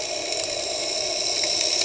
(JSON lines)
{"label": "anthrophony, boat engine", "recorder": "HydroMoth"}